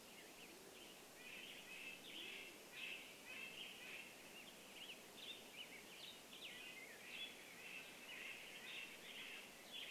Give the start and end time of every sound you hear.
[0, 2] Black-headed Grosbeak song
[0, 4] Band-tailed Pigeon call
[0, 4] Red-breasted Nuthatch song
[0, 4] Western Tanager song
[4, 10] Black-headed Grosbeak song
[6, 10] Red-breasted Nuthatch song
[8, 10] Western Tanager song

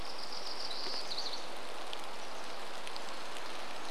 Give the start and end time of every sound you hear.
[0, 2] warbler song
[0, 4] rain

